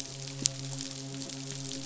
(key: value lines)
label: biophony, midshipman
recorder: SoundTrap 500